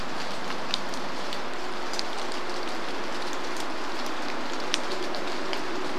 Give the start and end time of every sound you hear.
0s-6s: rain
0s-6s: vehicle engine

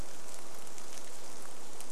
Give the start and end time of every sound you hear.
0s-2s: rain

